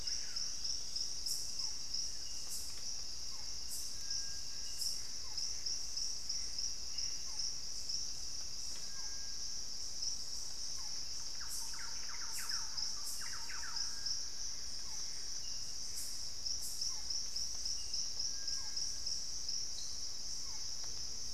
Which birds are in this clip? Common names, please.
Screaming Piha, Barred Forest-Falcon, Gray Antbird, Thrush-like Wren